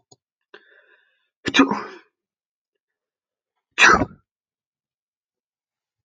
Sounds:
Sneeze